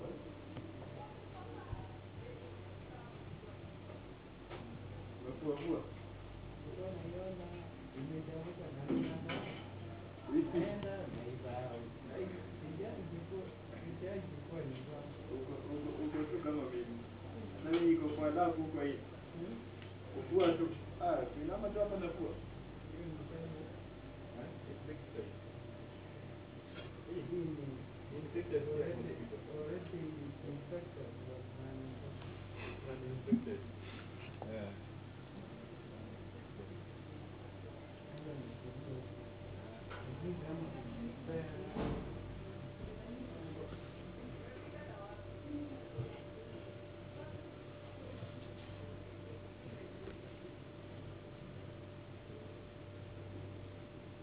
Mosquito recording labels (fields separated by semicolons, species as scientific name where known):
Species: no mosquito; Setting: insect culture